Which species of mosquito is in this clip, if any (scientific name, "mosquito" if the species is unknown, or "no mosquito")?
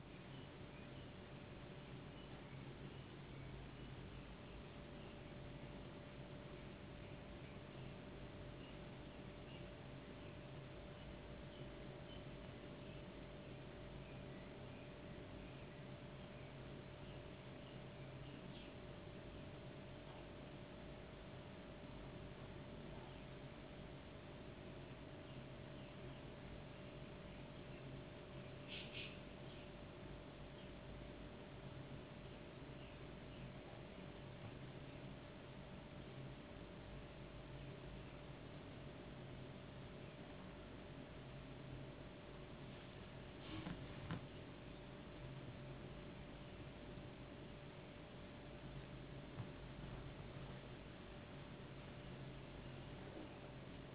no mosquito